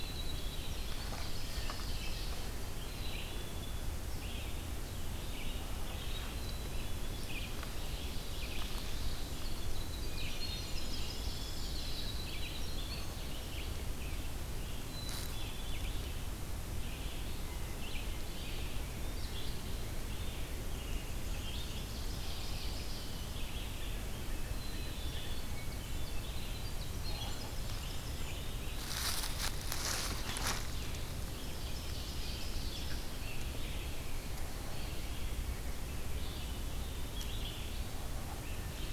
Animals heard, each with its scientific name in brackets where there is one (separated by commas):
Red-eyed Vireo (Vireo olivaceus), Black-capped Chickadee (Poecile atricapillus), Ovenbird (Seiurus aurocapilla), Winter Wren (Troglodytes hiemalis)